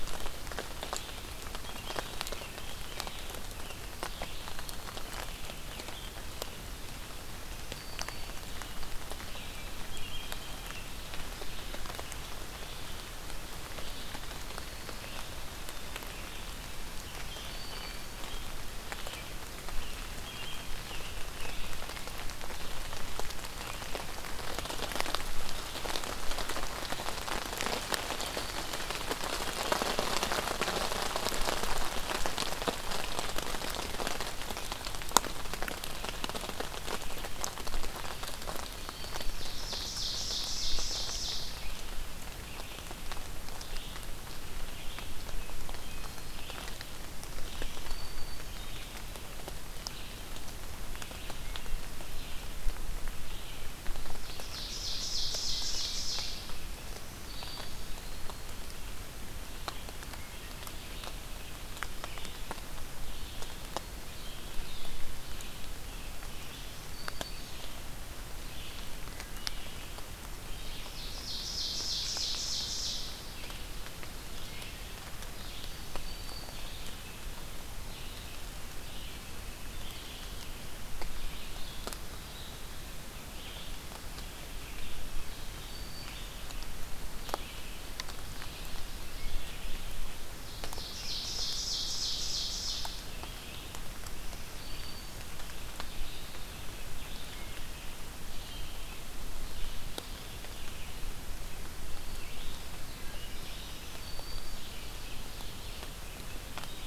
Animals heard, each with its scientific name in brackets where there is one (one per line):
Ovenbird (Seiurus aurocapilla)
Red-eyed Vireo (Vireo olivaceus)
American Robin (Turdus migratorius)
Black-throated Green Warbler (Setophaga virens)